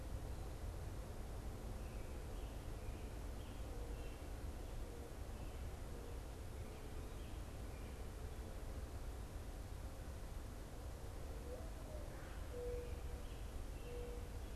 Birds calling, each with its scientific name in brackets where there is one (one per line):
Mourning Dove (Zenaida macroura)